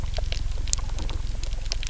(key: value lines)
label: anthrophony, boat engine
recorder: SoundTrap 300